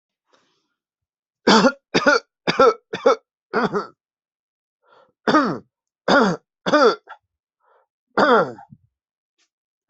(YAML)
expert_labels:
- quality: ok
  cough_type: unknown
  dyspnea: false
  wheezing: false
  stridor: false
  choking: false
  congestion: false
  nothing: true
  diagnosis: healthy cough
  severity: pseudocough/healthy cough
age: 41
gender: male
respiratory_condition: true
fever_muscle_pain: false
status: symptomatic